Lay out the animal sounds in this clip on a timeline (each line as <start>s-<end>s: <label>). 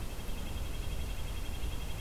0.0s-2.0s: Red-breasted Nuthatch (Sitta canadensis)